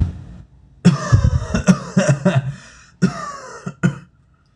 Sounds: Cough